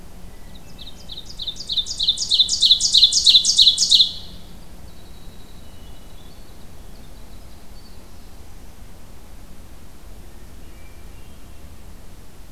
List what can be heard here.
Hermit Thrush, Ovenbird, Winter Wren